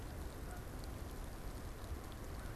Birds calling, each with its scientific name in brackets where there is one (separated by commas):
Canada Goose (Branta canadensis)